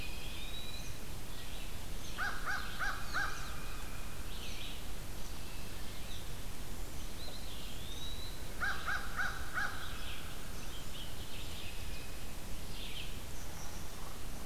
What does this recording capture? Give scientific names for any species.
Contopus virens, Vireo olivaceus, Corvus brachyrhynchos